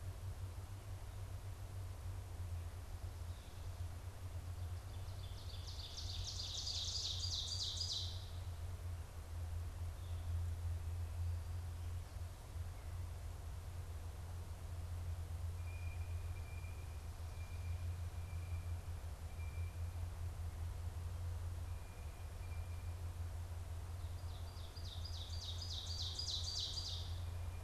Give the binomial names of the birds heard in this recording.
Seiurus aurocapilla, Cyanocitta cristata